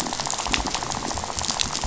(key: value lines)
label: biophony, rattle
recorder: SoundTrap 500